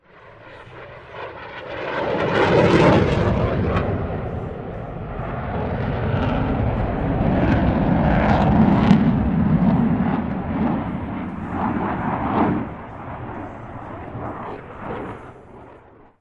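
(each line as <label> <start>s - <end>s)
An airplane flies overhead repeatedly, its loud sound increasing and fading into the distance. 0.0s - 16.2s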